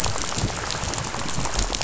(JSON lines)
{"label": "biophony, rattle", "recorder": "SoundTrap 500"}